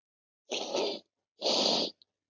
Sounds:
Sniff